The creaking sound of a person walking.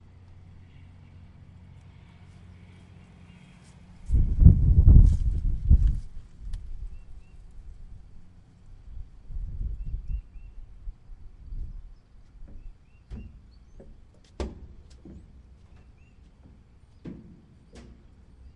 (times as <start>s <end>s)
4.1s 6.7s